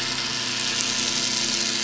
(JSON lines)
{"label": "anthrophony, boat engine", "recorder": "SoundTrap 500"}